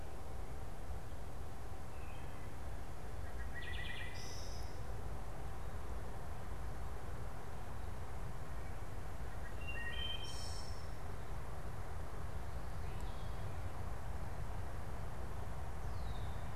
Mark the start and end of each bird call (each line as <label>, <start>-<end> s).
Wood Thrush (Hylocichla mustelina), 1.8-4.9 s
Wood Thrush (Hylocichla mustelina), 9.3-10.9 s
Red-winged Blackbird (Agelaius phoeniceus), 15.7-16.5 s